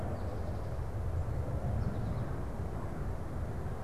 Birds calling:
American Goldfinch (Spinus tristis)

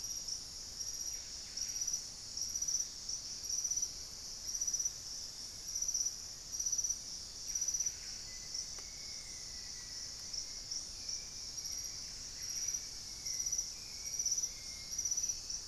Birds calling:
Black-faced Antthrush (Formicarius analis)
Hauxwell's Thrush (Turdus hauxwelli)
Buff-breasted Wren (Cantorchilus leucotis)

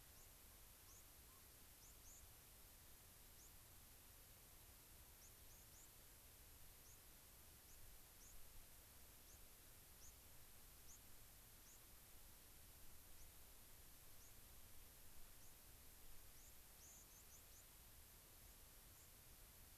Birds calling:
White-crowned Sparrow (Zonotrichia leucophrys)
unidentified bird

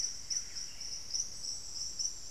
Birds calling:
Buff-breasted Wren (Cantorchilus leucotis)

